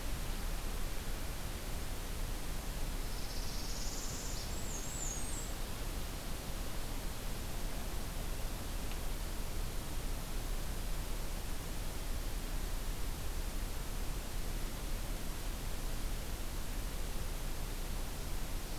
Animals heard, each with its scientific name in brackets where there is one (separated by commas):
Northern Parula (Setophaga americana), Black-and-white Warbler (Mniotilta varia)